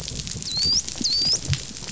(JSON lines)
{"label": "biophony, dolphin", "recorder": "SoundTrap 500"}